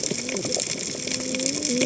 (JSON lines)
{"label": "biophony, cascading saw", "recorder": "HydroMoth"}